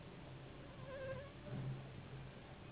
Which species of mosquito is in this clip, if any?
Anopheles gambiae s.s.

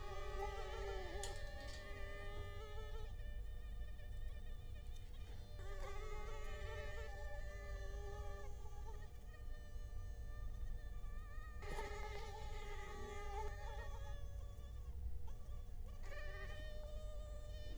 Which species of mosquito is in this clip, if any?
Culex quinquefasciatus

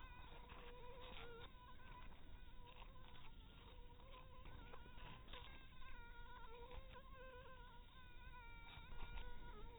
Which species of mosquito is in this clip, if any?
Anopheles dirus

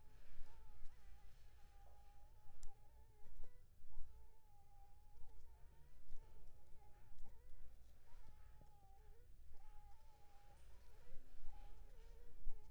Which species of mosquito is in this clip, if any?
Anopheles funestus s.s.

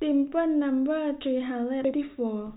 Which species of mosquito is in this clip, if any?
no mosquito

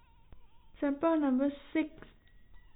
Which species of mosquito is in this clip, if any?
no mosquito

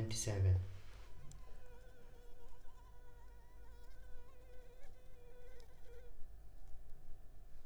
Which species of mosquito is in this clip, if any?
Anopheles arabiensis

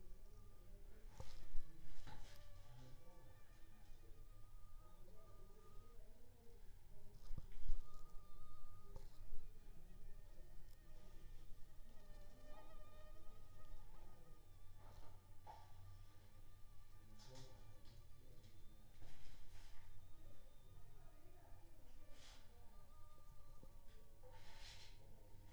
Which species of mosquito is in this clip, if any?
Aedes aegypti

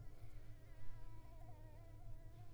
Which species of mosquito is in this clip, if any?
Anopheles coustani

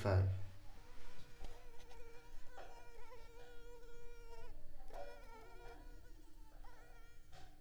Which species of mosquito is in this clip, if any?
Culex pipiens complex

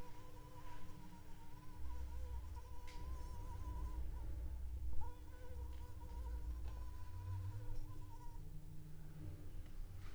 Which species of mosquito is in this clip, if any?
Anopheles arabiensis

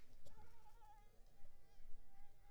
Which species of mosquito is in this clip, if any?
Anopheles arabiensis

